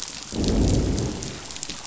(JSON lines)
{"label": "biophony, growl", "recorder": "SoundTrap 500"}